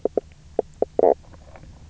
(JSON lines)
{"label": "biophony, knock croak", "recorder": "SoundTrap 300"}